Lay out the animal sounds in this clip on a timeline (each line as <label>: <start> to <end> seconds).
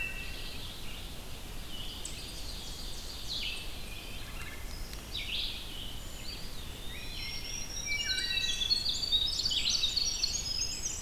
Wood Thrush (Hylocichla mustelina): 0.0 to 0.5 seconds
Rose-breasted Grosbeak (Pheucticus ludovicianus): 0.0 to 1.1 seconds
Red-eyed Vireo (Vireo olivaceus): 1.6 to 11.0 seconds
Ovenbird (Seiurus aurocapilla): 1.7 to 3.7 seconds
Wood Thrush (Hylocichla mustelina): 3.5 to 4.6 seconds
Eastern Wood-Pewee (Contopus virens): 6.1 to 7.5 seconds
Black-throated Green Warbler (Setophaga virens): 6.9 to 8.7 seconds
Wood Thrush (Hylocichla mustelina): 7.9 to 9.1 seconds
Winter Wren (Troglodytes hiemalis): 8.3 to 11.0 seconds